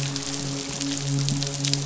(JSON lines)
{"label": "biophony, midshipman", "recorder": "SoundTrap 500"}